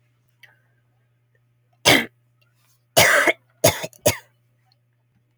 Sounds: Cough